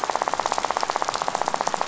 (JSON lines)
{"label": "biophony, rattle", "recorder": "SoundTrap 500"}